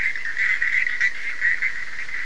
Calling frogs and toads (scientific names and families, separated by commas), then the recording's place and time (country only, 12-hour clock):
Boana bischoffi (Hylidae)
Brazil, 2:15am